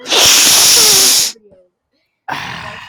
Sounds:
Sniff